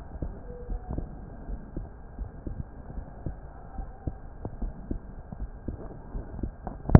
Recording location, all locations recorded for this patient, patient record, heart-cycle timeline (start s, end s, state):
pulmonary valve (PV)
aortic valve (AV)+pulmonary valve (PV)+tricuspid valve (TV)+mitral valve (MV)
#Age: Adolescent
#Sex: Male
#Height: 155.0 cm
#Weight: 53.0 kg
#Pregnancy status: False
#Murmur: Absent
#Murmur locations: nan
#Most audible location: nan
#Systolic murmur timing: nan
#Systolic murmur shape: nan
#Systolic murmur grading: nan
#Systolic murmur pitch: nan
#Systolic murmur quality: nan
#Diastolic murmur timing: nan
#Diastolic murmur shape: nan
#Diastolic murmur grading: nan
#Diastolic murmur pitch: nan
#Diastolic murmur quality: nan
#Outcome: Normal
#Campaign: 2015 screening campaign
0.00	0.65	unannotated
0.65	0.80	S1
0.80	0.92	systole
0.92	1.08	S2
1.08	1.48	diastole
1.48	1.60	S1
1.60	1.76	systole
1.76	1.88	S2
1.88	2.20	diastole
2.20	2.30	S1
2.30	2.46	systole
2.46	2.58	S2
2.58	2.96	diastole
2.96	3.06	S1
3.06	3.24	systole
3.24	3.36	S2
3.36	3.78	diastole
3.78	3.90	S1
3.90	4.04	systole
4.04	4.18	S2
4.18	4.60	diastole
4.60	4.74	S1
4.74	4.88	systole
4.88	5.02	S2
5.02	5.37	diastole
5.37	5.50	S1
5.50	5.65	systole
5.65	5.76	S2
5.76	6.11	diastole
6.11	6.26	S1
6.26	6.40	systole
6.40	6.52	S2
6.52	6.99	unannotated